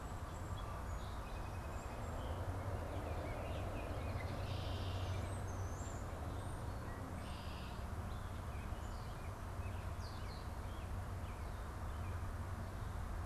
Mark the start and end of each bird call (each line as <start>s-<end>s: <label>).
0.0s-2.5s: Song Sparrow (Melospiza melodia)
2.7s-4.3s: Baltimore Oriole (Icterus galbula)
4.0s-7.9s: Red-winged Blackbird (Agelaius phoeniceus)
8.1s-12.2s: American Robin (Turdus migratorius)